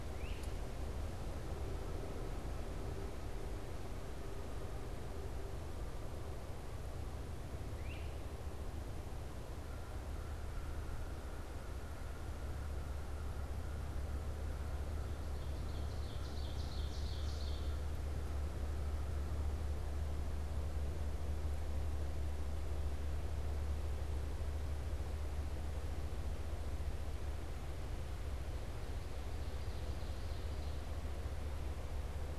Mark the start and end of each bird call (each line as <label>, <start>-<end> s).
Great Crested Flycatcher (Myiarchus crinitus), 0.0-0.5 s
Great Crested Flycatcher (Myiarchus crinitus), 7.7-8.2 s
Ovenbird (Seiurus aurocapilla), 15.3-17.8 s